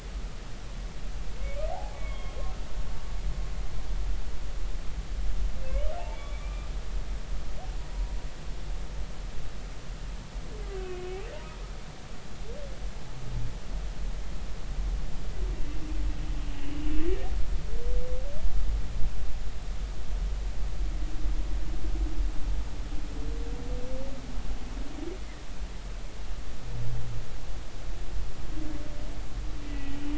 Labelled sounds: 1.7	2.4	humpback whale, 0.80 to 3.3 kHz
6.1	6.7	humpback whale, 1.1 to 3.5 kHz
10.7	11.6	humpback whale, 0.86 to 3.0 kHz
16.6	16.9	humpback whale, 2.7 to 3.0 kHz
29.7	30.0	humpback whale, 1.9 to 2.0 kHz

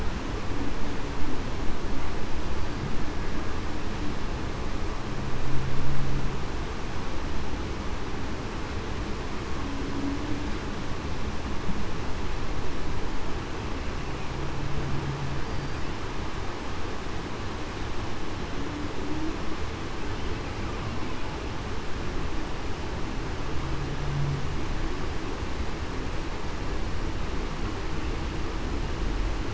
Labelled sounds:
15.4	15.8	killer whale, Bigg's (transient), 4.6 to 4.8 kHz

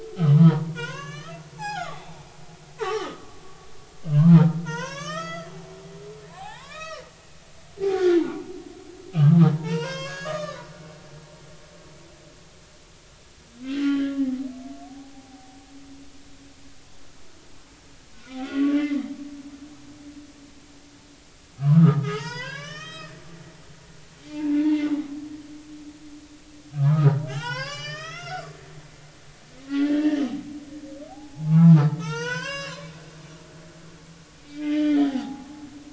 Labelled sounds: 0.3	2.2	humpback whale, 0.80 to 7.7 kHz
2.8	5.5	humpback whale, 0.86 to 6.8 kHz
6.4	7.0	humpback whale, 0.80 to 5.9 kHz
7.9	8.4	humpback whale, 0.83 to 1.6 kHz
9.1	11.3	humpback whale, 0.83 to 6.8 kHz
13.6	14.2	humpback whale, 1.3 to 3.4 kHz
14.8	15.6	humpback whale, 0.80 to 1.0 kHz
18.3	18.8	humpback whale, 1.1 to 2.0 kHz
21.6	23.2	humpback whale, 0.80 to 7.9 kHz
24.3	24.9	humpback whale, 0.83 to 2.2 kHz
26.8	28.5	humpback whale, 0.80 to 7.2 kHz
29.6	30.2	humpback whale, 1.5 to 2.9 kHz
31.1	33.0	humpback whale, 0.80 to 7.4 kHz
34.4	35.5	humpback whale, 0.80 to 3.4 kHz

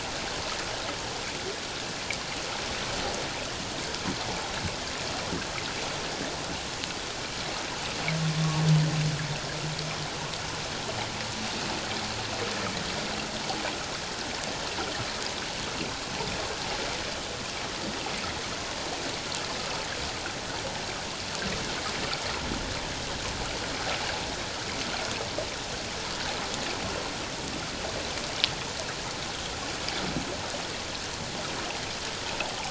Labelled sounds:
8.4	8.6	humpback whale, 1.1 to 1.2 kHz

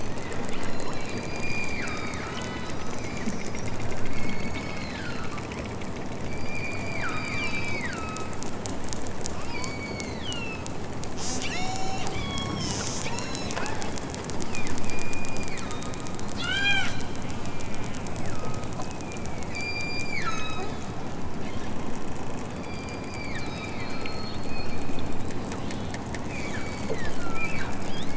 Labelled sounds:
0.5	3.6	killer whale, southern Alaska resident, 0.69 to 7.9 kHz
4.1	5.5	killer whale, southern Alaska resident, 0.69 to 6.9 kHz
6.2	8.4	killer whale, southern Alaska resident, 0.92 to 7.4 kHz
9.3	10.8	killer whale, southern Alaska resident, 1.2 to 8.0 kHz
11.1	13.3	killer whale, southern Alaska resident, 0.60 to 8.0 kHz
14.8	16.0	killer whale, southern Alaska resident, 1.0 to 5.3 kHz
16.3	18.9	killer whale, southern Alaska resident, 0.51 to 8.0 kHz
19.5	20.7	killer whale, southern Alaska resident, 1.1 to 7.5 kHz
22.5	24.4	killer whale, southern Alaska resident, 1.0 to 6.8 kHz
26.3	27.7	killer whale, southern Alaska resident, 0.92 to 8.0 kHz

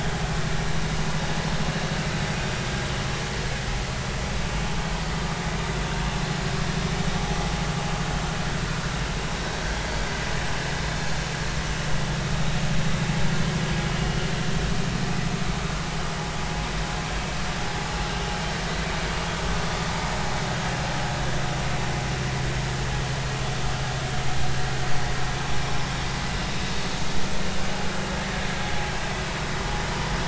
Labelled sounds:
13.9	14.2	vessel noise, 2.8 to 2.9 kHz

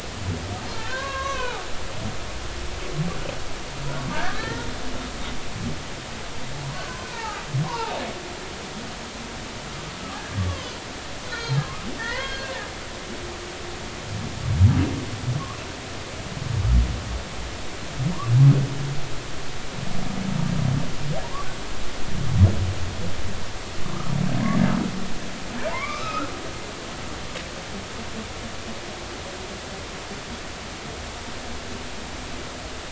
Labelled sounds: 1.0	1.6	humpback whale, 2.3 to 6.2 kHz
4.1	4.7	humpback whale, 1.3 to 2.0 kHz
6.6	8.0	humpback whale, 0.80 to 1.9 kHz
11.3	11.6	humpback whale, 1.3 to 4.2 kHz
12.0	13.3	humpback whale, 0.86 to 4.4 kHz
25.7	27.3	humpback whale, 0.86 to 2.6 kHz

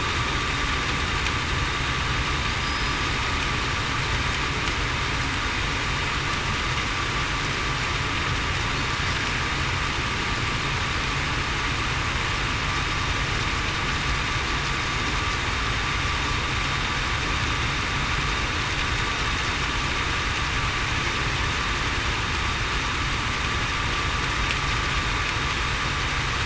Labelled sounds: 2.6	2.9	killer whale, Bigg's (transient), 4.9 to 5.1 kHz

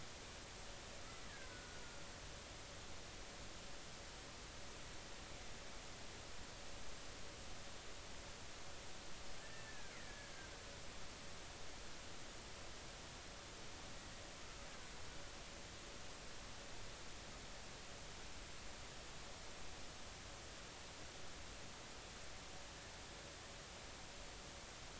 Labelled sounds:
1.5	1.8	killer whale, Bigg's (transient), 1.4 to 1.5 kHz
9.4	10.3	killer whale, Bigg's (transient), 1.5 to 2.2 kHz

